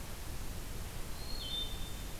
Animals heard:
Wood Thrush (Hylocichla mustelina)

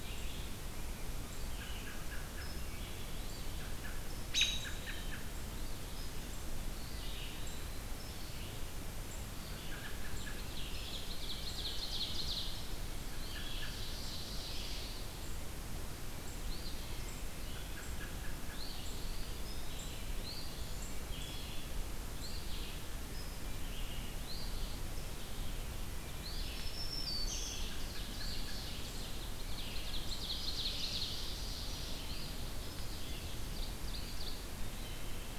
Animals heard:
Eastern Wood-Pewee (Contopus virens), Eastern Phoebe (Sayornis phoebe), American Robin (Turdus migratorius), Wood Thrush (Hylocichla mustelina), Black-throated Green Warbler (Setophaga virens), Ovenbird (Seiurus aurocapilla), Red-eyed Vireo (Vireo olivaceus)

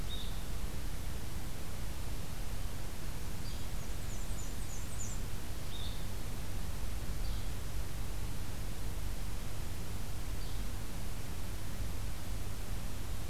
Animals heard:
Blue-headed Vireo (Vireo solitarius), Black-and-white Warbler (Mniotilta varia), Yellow-bellied Flycatcher (Empidonax flaviventris)

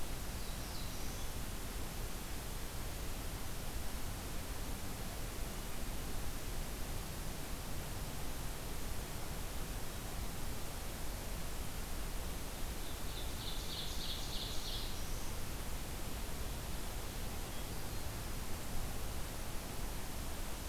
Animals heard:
Hermit Thrush (Catharus guttatus), Black-throated Blue Warbler (Setophaga caerulescens), Ovenbird (Seiurus aurocapilla)

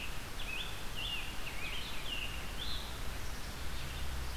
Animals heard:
Red-eyed Vireo (Vireo olivaceus), Scarlet Tanager (Piranga olivacea)

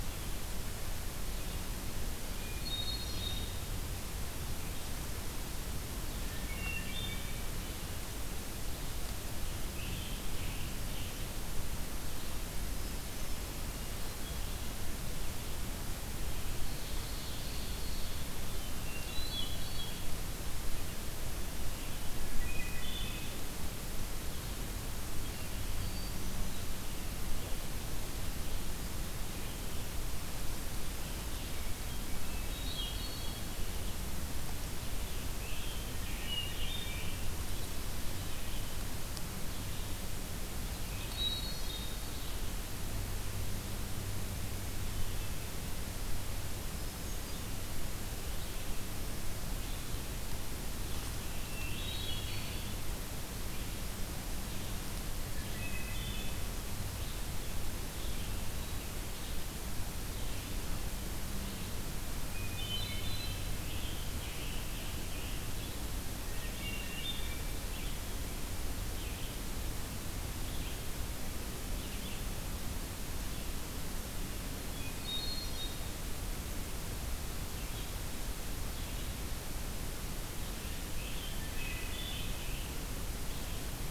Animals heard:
Scarlet Tanager (Piranga olivacea), Hermit Thrush (Catharus guttatus), Ovenbird (Seiurus aurocapilla)

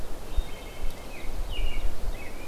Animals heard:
Wood Thrush (Hylocichla mustelina), American Robin (Turdus migratorius)

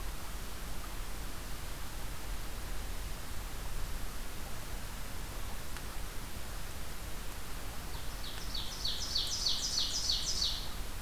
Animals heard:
Ovenbird (Seiurus aurocapilla)

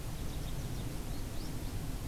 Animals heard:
American Goldfinch (Spinus tristis)

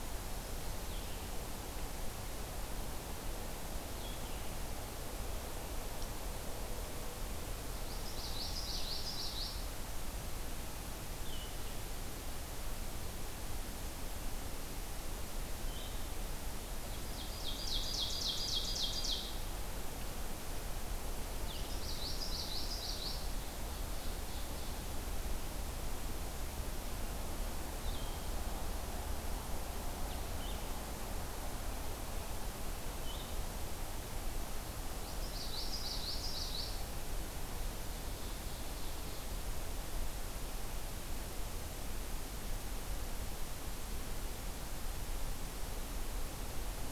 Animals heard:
Ovenbird (Seiurus aurocapilla), Common Yellowthroat (Geothlypis trichas), Blue-headed Vireo (Vireo solitarius)

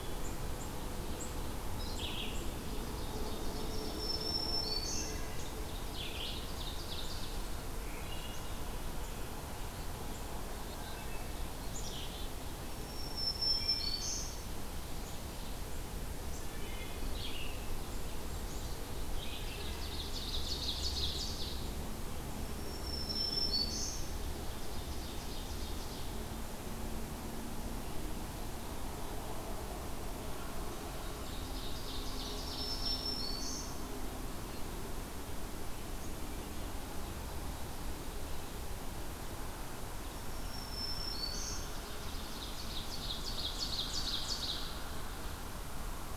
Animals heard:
Red-eyed Vireo (Vireo olivaceus), Black-capped Chickadee (Poecile atricapillus), Wood Thrush (Hylocichla mustelina), Black-throated Green Warbler (Setophaga virens), Ovenbird (Seiurus aurocapilla), Blue Jay (Cyanocitta cristata)

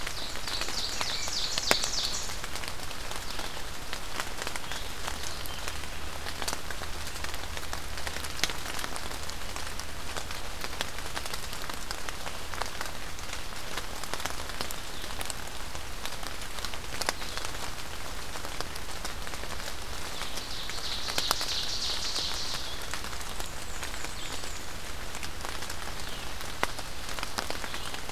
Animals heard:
Black-and-white Warbler (Mniotilta varia), Ovenbird (Seiurus aurocapilla), Blue-headed Vireo (Vireo solitarius)

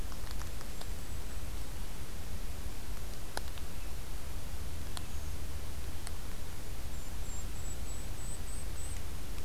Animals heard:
Golden-crowned Kinglet (Regulus satrapa)

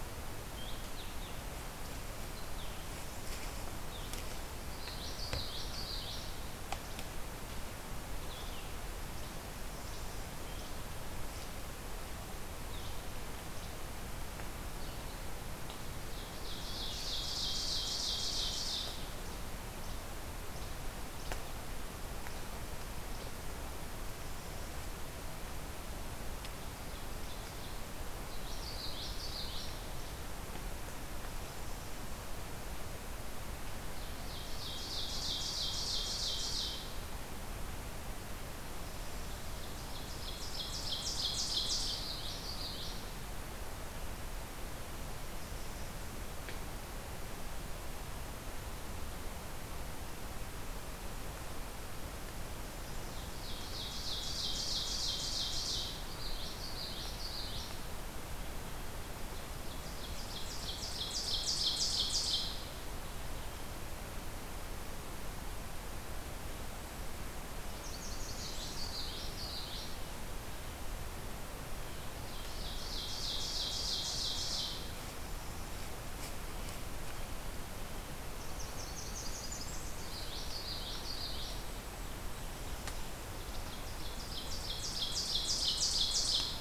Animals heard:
Ovenbird (Seiurus aurocapilla), Least Flycatcher (Empidonax minimus), Common Yellowthroat (Geothlypis trichas), Blue-headed Vireo (Vireo solitarius), Blackburnian Warbler (Setophaga fusca)

